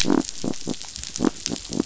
{"label": "biophony", "recorder": "SoundTrap 500"}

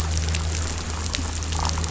{"label": "anthrophony, boat engine", "recorder": "SoundTrap 500"}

